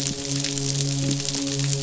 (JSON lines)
{"label": "biophony, midshipman", "recorder": "SoundTrap 500"}